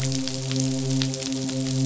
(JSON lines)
{"label": "biophony, midshipman", "recorder": "SoundTrap 500"}